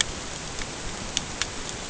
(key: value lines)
label: ambient
recorder: HydroMoth